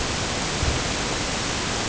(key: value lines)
label: ambient
recorder: HydroMoth